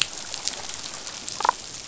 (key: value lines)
label: biophony, damselfish
recorder: SoundTrap 500